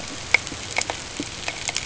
{"label": "ambient", "recorder": "HydroMoth"}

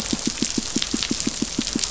{"label": "biophony, pulse", "recorder": "SoundTrap 500"}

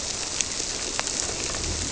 {"label": "biophony", "recorder": "SoundTrap 300"}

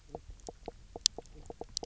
{"label": "biophony", "recorder": "SoundTrap 300"}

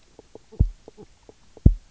{"label": "biophony, knock croak", "recorder": "SoundTrap 300"}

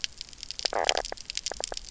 {"label": "biophony, knock croak", "recorder": "SoundTrap 300"}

